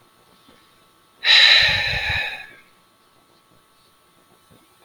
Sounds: Sigh